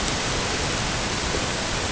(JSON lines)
{"label": "ambient", "recorder": "HydroMoth"}